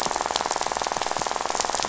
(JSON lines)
{"label": "biophony, rattle", "recorder": "SoundTrap 500"}